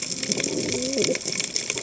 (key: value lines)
label: biophony, cascading saw
recorder: HydroMoth